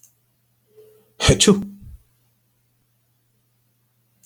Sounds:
Sneeze